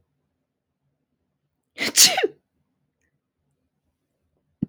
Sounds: Sneeze